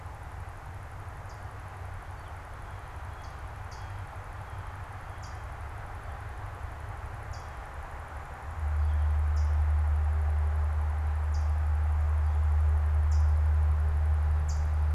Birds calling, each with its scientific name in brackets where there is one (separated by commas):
Hooded Warbler (Setophaga citrina), Blue Jay (Cyanocitta cristata)